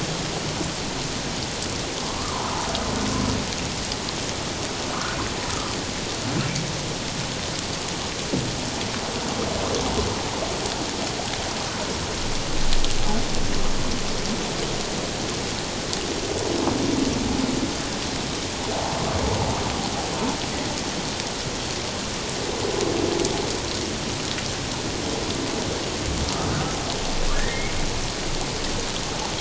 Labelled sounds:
27.3	27.7	humpback whale, 1.6 to 2.3 kHz

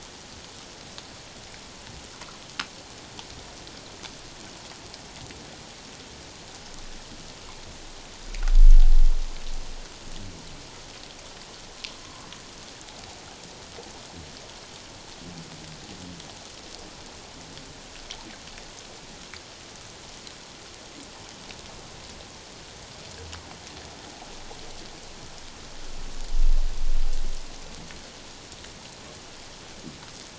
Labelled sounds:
12.0	12.3	humpback whale, 0.94 to 1.2 kHz

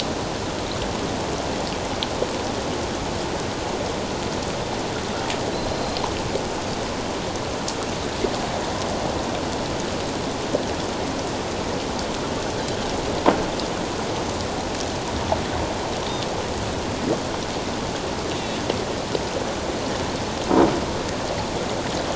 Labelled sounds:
5.5	6.0	Pacific white-sided dolphin, 4.0 to 4.2 kHz

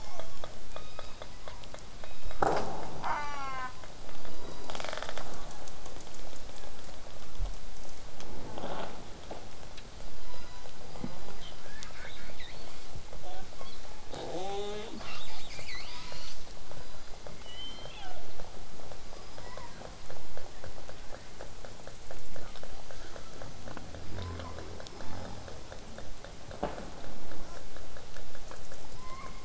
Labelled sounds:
0.0	0.6	killer whale, southern resident, 0.43 to 6.7 kHz
1.3	1.6	killer whale, southern resident, 0.74 to 2.2 kHz
3.0	3.8	killer whale, southern resident, J pod, call S04, 0.54 to 7.3 kHz
4.2	4.9	killer whale, southern resident, 2.7 to 5.0 kHz
4.7	5.2	killer whale, southern resident, rasp, 0.27 to 8.0 kHz
5.4	5.8	killer whale, southern resident, 0.85 to 1.9 kHz
6.4	6.8	killer whale, southern resident, 1.4 to 1.8 kHz
7.2	7.5	killer whale, southern resident, 0.36 to 0.94 kHz
10.2	10.7	killer whale, southern resident, 0.81 to 8.0 kHz
10.9	12.9	killer whale, southern resident, call S10, 0.15 to 5.3 kHz
13.2	13.5	killer whale, southern resident, J pod, call S05, 0.27 to 4.0 kHz
13.5	14.0	killer whale, southern resident, J pod, call S06, 0.23 to 4.8 kHz
14.1	16.3	killer whale, southern resident, call S10, 0.15 to 8.0 kHz
16.8	17.4	killer whale, southern resident, 3.7 to 5.0 kHz
17.4	18.2	killer whale, southern resident, call S01, 0.54 to 5.3 kHz
19.1	19.8	killer whale, southern resident, whistle, 4.7 to 5.4 kHz
20.0	22.8	vessel noise, 0 to 8.0 kHz
22.9	23.5	killer whale, southern resident, 0.94 to 1.9 kHz
27.5	27.6	killer whale, southern resident, J pod, call S05, 0.19 to 8.0 kHz
28.9	29.4	killer whale, southern resident, 0.86 to 2.4 kHz

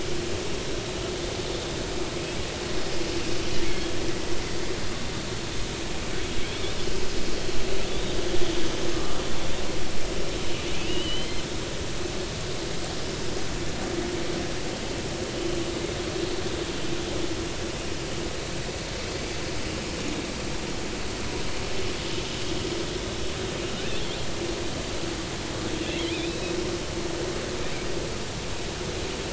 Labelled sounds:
3.7	3.9	killer whale, offshore, 1.6 to 1.8 kHz
7.9	8.2	killer whale, offshore, 3.4 to 3.8 kHz
8.9	9.2	killer whale, offshore, 1.1 to 1.4 kHz
10.7	11.3	killer whale, offshore, 2.3 to 3.2 kHz
23.9	24.2	killer whale, offshore, 3.1 to 3.7 kHz
26.1	26.6	killer whale, offshore, 2.2 to 4.0 kHz

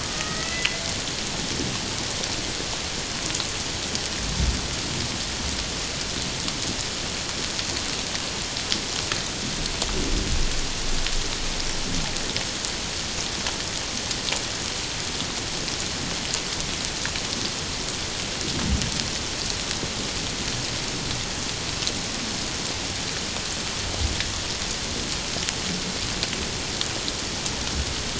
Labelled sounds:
0.0	0.8	killer whale, Bigg's (transient), 1.1 to 2.1 kHz

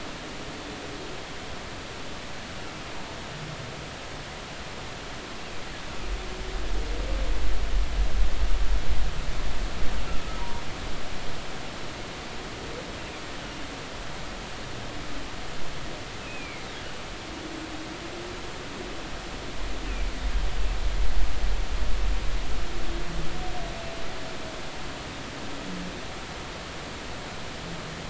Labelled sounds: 10.4	10.6	humpback whale, 0.90 to 1.2 kHz
16.2	16.7	humpback whale, 2.1 to 2.7 kHz

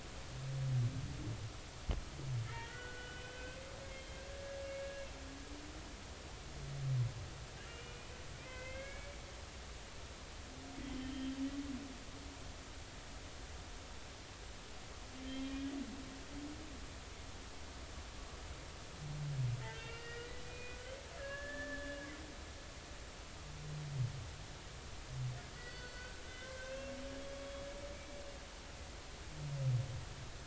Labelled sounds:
2.4	5.1	humpback whale, 1.4 to 3.2 kHz
7.7	9.2	humpback whale, 1.5 to 2.9 kHz
10.9	11.3	humpback whale, 3.0 to 3.2 kHz
15.3	15.5	humpback whale, 3.1 to 3.3 kHz
19.7	22.0	humpback whale, 1.3 to 4.8 kHz
25.5	27.4	humpback whale, 1.4 to 4.6 kHz
27.9	28.2	humpback whale, 2.2 to 2.4 kHz

